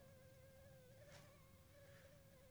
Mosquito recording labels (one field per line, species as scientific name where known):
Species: Anopheles funestus s.s.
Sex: female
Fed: unfed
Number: one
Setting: cup